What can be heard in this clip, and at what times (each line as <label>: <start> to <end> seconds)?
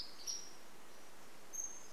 Pacific-slope Flycatcher song: 0 to 2 seconds